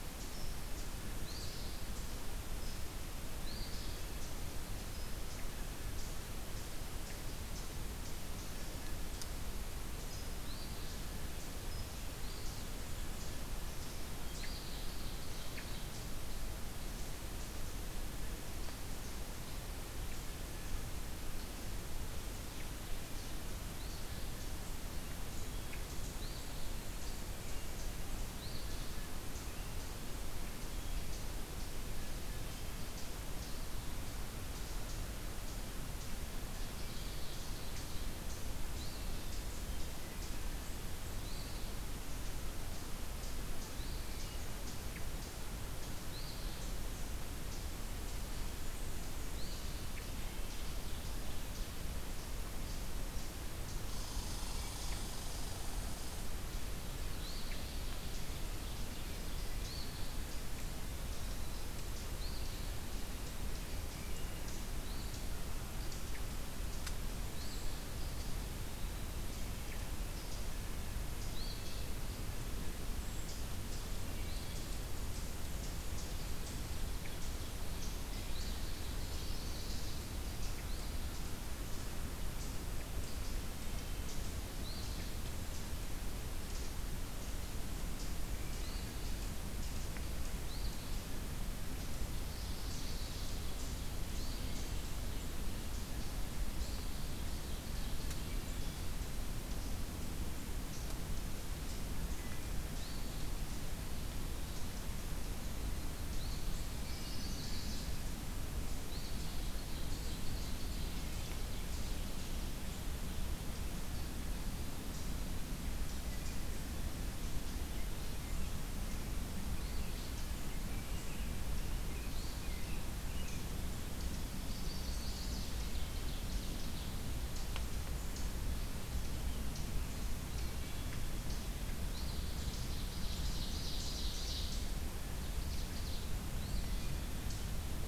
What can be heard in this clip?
Eastern Phoebe, Ovenbird, American Robin, Wood Thrush, Red Squirrel, Eastern Wood-Pewee, Brown Creeper, Chestnut-sided Warbler